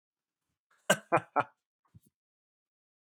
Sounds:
Laughter